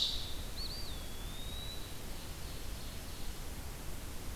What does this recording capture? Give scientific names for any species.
Vireo olivaceus, Contopus virens, Seiurus aurocapilla